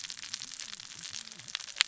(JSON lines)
{"label": "biophony, cascading saw", "recorder": "SoundTrap 600 or HydroMoth"}